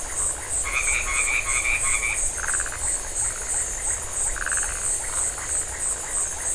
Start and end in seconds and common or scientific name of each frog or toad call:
0.0	2.4	white-edged tree frog
0.0	6.5	Phyllomedusa distincta